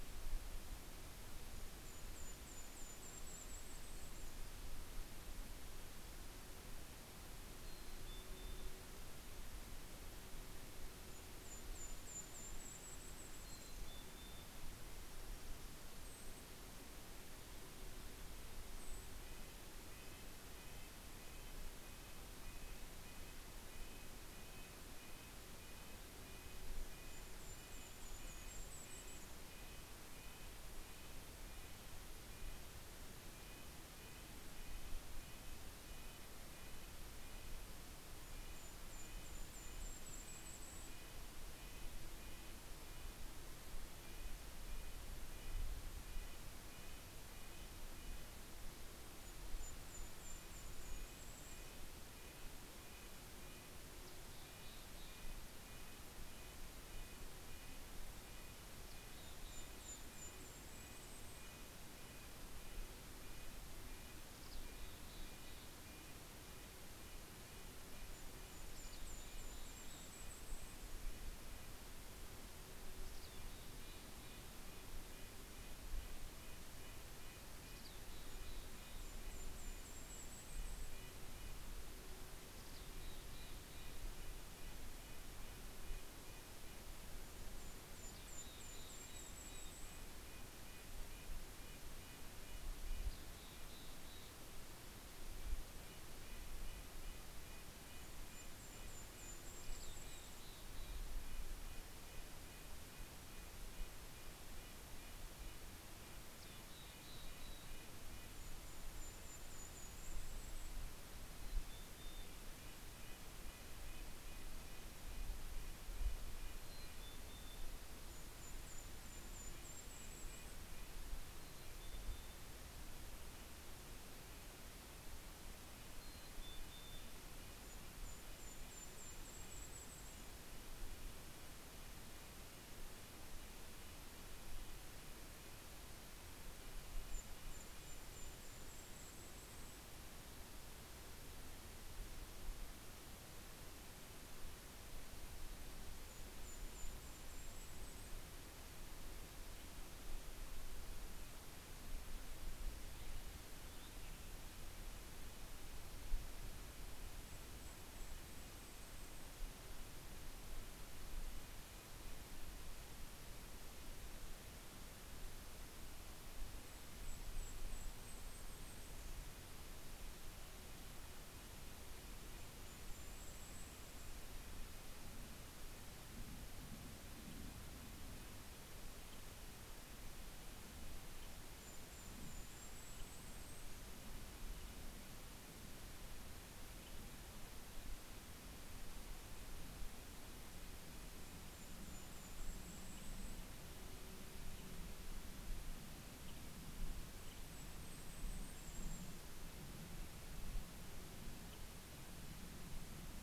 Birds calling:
Western Tanager (Piranga ludoviciana), Mountain Chickadee (Poecile gambeli), Red-breasted Nuthatch (Sitta canadensis), Golden-crowned Kinglet (Regulus satrapa)

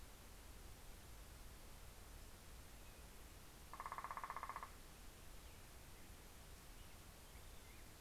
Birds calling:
Northern Flicker (Colaptes auratus)

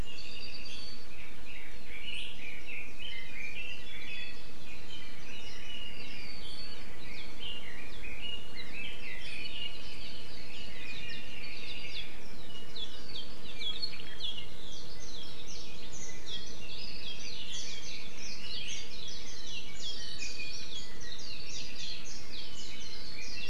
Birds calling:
Red-billed Leiothrix (Leiothrix lutea), Iiwi (Drepanis coccinea), Apapane (Himatione sanguinea)

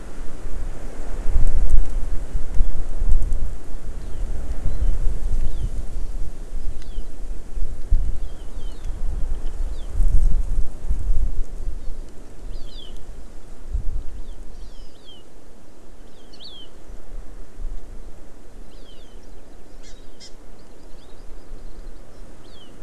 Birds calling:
Hawaii Amakihi (Chlorodrepanis virens)

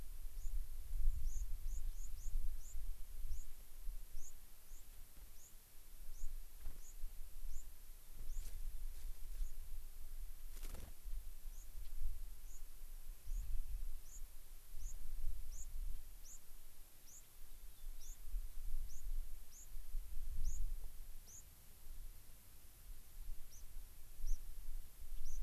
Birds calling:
unidentified bird, White-crowned Sparrow (Zonotrichia leucophrys), Rock Wren (Salpinctes obsoletus)

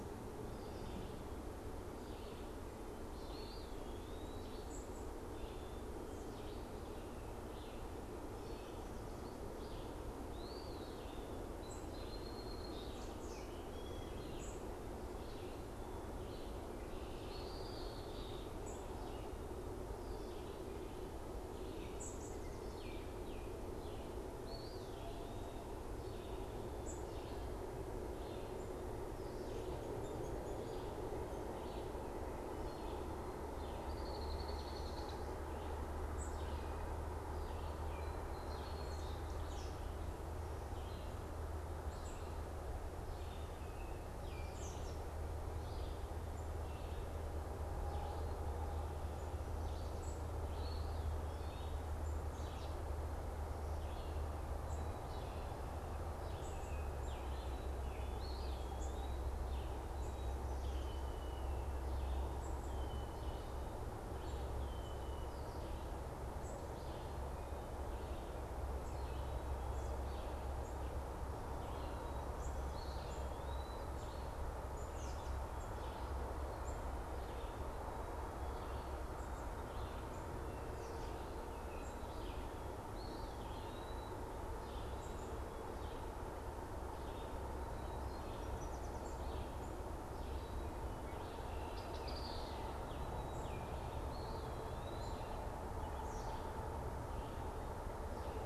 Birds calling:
American Robin (Turdus migratorius), Eastern Wood-Pewee (Contopus virens), Baltimore Oriole (Icterus galbula), Song Sparrow (Melospiza melodia), unidentified bird, Red-winged Blackbird (Agelaius phoeniceus), Red-eyed Vireo (Vireo olivaceus), Yellow Warbler (Setophaga petechia)

